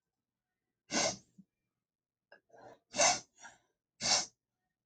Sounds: Sniff